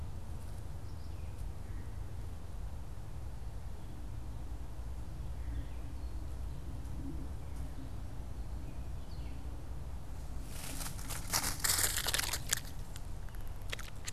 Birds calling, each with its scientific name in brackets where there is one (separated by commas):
Gray Catbird (Dumetella carolinensis)